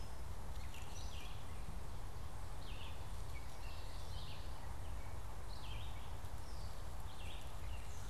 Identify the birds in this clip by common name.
Gray Catbird, Red-eyed Vireo